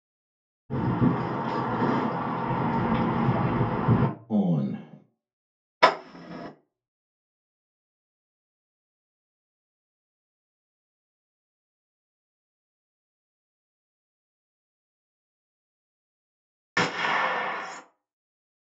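At the start, wind can be heard. After that, about 4 seconds in, a voice says "On." Next, about 6 seconds in, a window opens. Later, about 17 seconds in, gunfire is heard.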